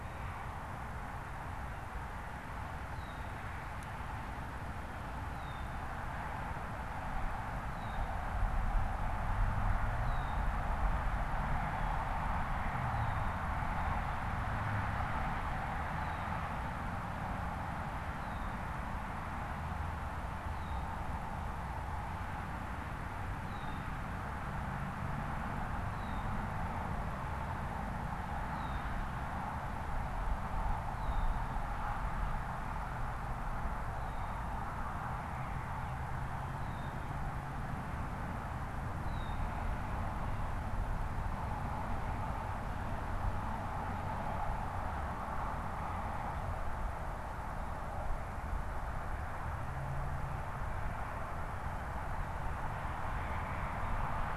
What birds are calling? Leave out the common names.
Agelaius phoeniceus, Cyanocitta cristata